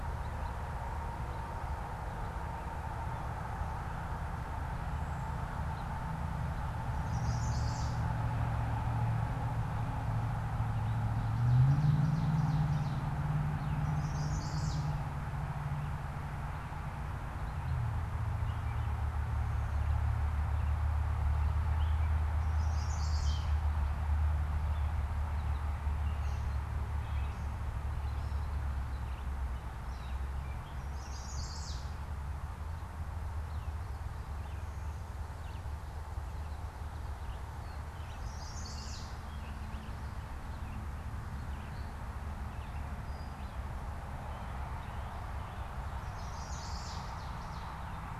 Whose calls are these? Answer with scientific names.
Setophaga pensylvanica, Seiurus aurocapilla, Dumetella carolinensis, Vireo olivaceus